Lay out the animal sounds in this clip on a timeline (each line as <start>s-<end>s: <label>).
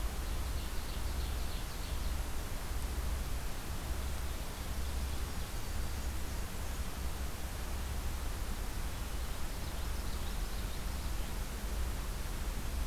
0.0s-2.3s: Common Yellowthroat (Geothlypis trichas)
9.0s-11.8s: Common Yellowthroat (Geothlypis trichas)